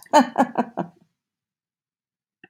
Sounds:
Laughter